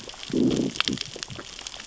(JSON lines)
{"label": "biophony, growl", "recorder": "SoundTrap 600 or HydroMoth"}